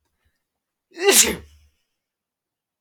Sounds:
Sneeze